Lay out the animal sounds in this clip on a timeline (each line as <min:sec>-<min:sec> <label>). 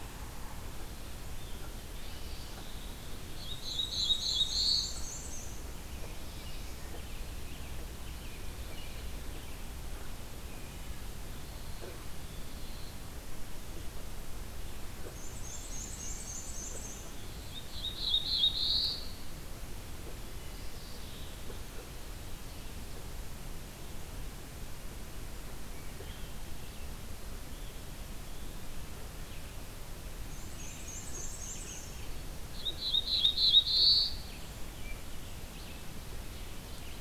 0:01.2-0:03.3 Scarlet Tanager (Piranga olivacea)
0:03.2-0:05.3 Black-throated Blue Warbler (Setophaga caerulescens)
0:03.4-0:05.9 Black-and-white Warbler (Mniotilta varia)
0:05.7-0:09.1 American Robin (Turdus migratorius)
0:06.0-0:07.0 Black-throated Blue Warbler (Setophaga caerulescens)
0:10.4-0:11.0 Wood Thrush (Hylocichla mustelina)
0:14.9-0:17.2 Black-and-white Warbler (Mniotilta varia)
0:17.4-0:19.1 Black-throated Blue Warbler (Setophaga caerulescens)
0:20.4-0:21.5 Mourning Warbler (Geothlypis philadelphia)
0:25.8-0:26.4 Wood Thrush (Hylocichla mustelina)
0:27.4-0:37.0 Red-eyed Vireo (Vireo olivaceus)
0:30.1-0:32.1 Black-and-white Warbler (Mniotilta varia)
0:30.7-0:31.2 Wood Thrush (Hylocichla mustelina)
0:32.4-0:34.4 Black-throated Blue Warbler (Setophaga caerulescens)